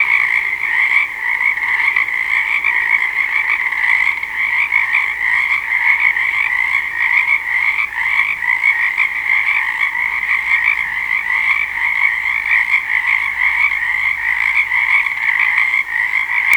Are these animals bigger than a medium sized dog?
no